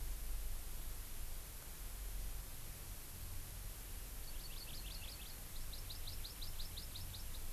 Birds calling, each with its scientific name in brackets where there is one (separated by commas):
Hawaii Amakihi (Chlorodrepanis virens)